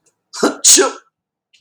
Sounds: Sneeze